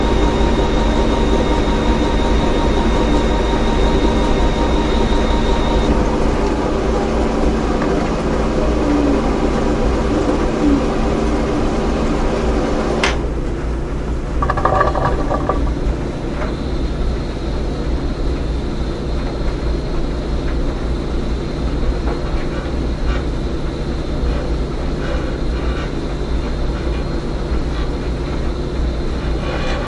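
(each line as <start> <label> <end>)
0.0 A monotone sound of a washing machine. 29.9
12.9 A high-pitched hitting sound. 13.4
14.2 A bubbling noise. 16.0
22.6 Wood cracking in the background. 29.9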